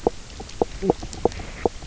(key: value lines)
label: biophony, knock croak
recorder: SoundTrap 300